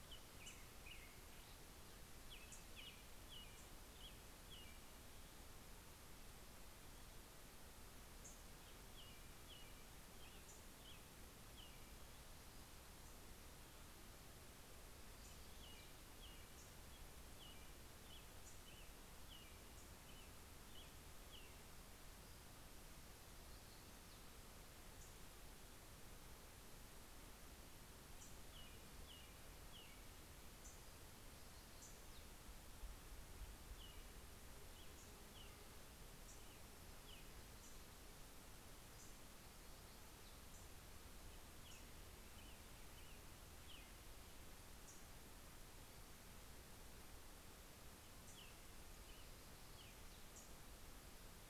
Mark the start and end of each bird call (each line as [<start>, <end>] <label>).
[0.13, 0.93] Black-throated Gray Warbler (Setophaga nigrescens)
[1.93, 5.43] American Robin (Turdus migratorius)
[2.33, 2.83] Black-throated Gray Warbler (Setophaga nigrescens)
[3.33, 4.23] Black-throated Gray Warbler (Setophaga nigrescens)
[7.63, 8.73] Black-throated Gray Warbler (Setophaga nigrescens)
[8.23, 12.33] American Robin (Turdus migratorius)
[10.33, 11.13] Black-throated Gray Warbler (Setophaga nigrescens)
[14.33, 20.03] Black-throated Gray Warbler (Setophaga nigrescens)
[14.83, 22.33] American Robin (Turdus migratorius)
[22.03, 45.63] Black-throated Gray Warbler (Setophaga nigrescens)
[47.83, 50.43] American Robin (Turdus migratorius)
[47.83, 50.93] Black-throated Gray Warbler (Setophaga nigrescens)